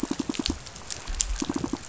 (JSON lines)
{"label": "biophony, pulse", "recorder": "SoundTrap 500"}